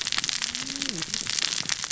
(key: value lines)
label: biophony, cascading saw
recorder: SoundTrap 600 or HydroMoth